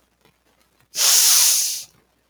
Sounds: Sniff